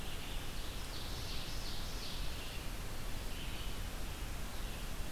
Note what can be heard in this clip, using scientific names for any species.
Vireo olivaceus, Seiurus aurocapilla